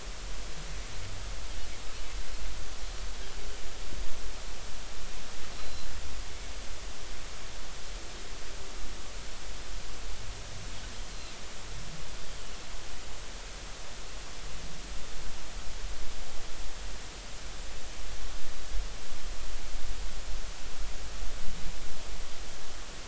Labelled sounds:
5.5	5.9	Pacific white-sided dolphin, 4.0 to 4.2 kHz

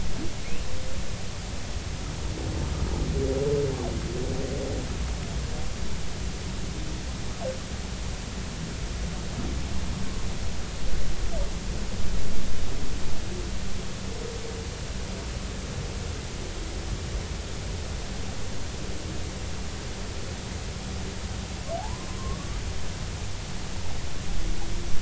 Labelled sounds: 21.8	22.6	humpback whale, 0.80 to 1.3 kHz

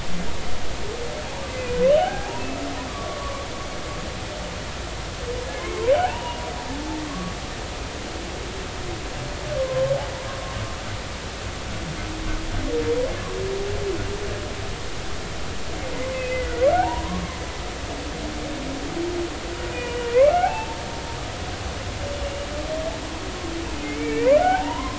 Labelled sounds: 1.5	2.5	humpback whale, 0.80 to 3.1 kHz
2.9	3.5	humpback whale, 0.96 to 1.2 kHz
5.5	6.4	humpback whale, 0.80 to 3.0 kHz
7.1	7.3	humpback whale, 1.0 to 1.2 kHz
9.6	9.9	humpback whale, 0.99 to 1.1 kHz
16.1	17.2	humpback whale, 0.80 to 2.7 kHz
19.7	20.8	humpback whale, 0.80 to 3.0 kHz
23.8	24.9	humpback whale, 0.80 to 2.6 kHz

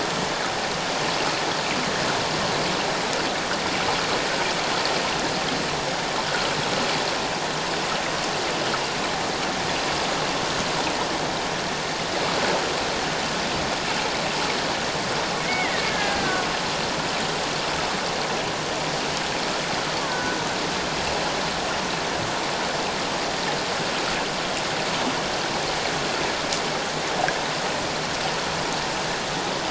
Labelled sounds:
15.4	16.5	killer whale, Bigg's (transient), 1.4 to 2.3 kHz
20.1	20.4	killer whale, Bigg's (transient), 1.4 to 1.6 kHz

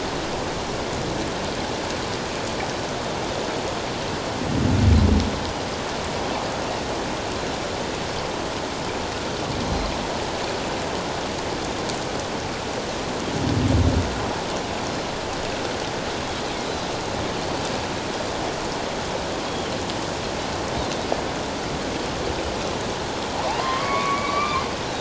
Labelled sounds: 9.6	9.9	Pacific white-sided dolphin, 4.1 to 4.2 kHz
23.5	24.6	humpback whale, 0.78 to 2.5 kHz

